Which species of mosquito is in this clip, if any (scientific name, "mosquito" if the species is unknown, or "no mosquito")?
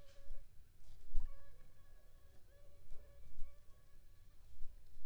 Aedes aegypti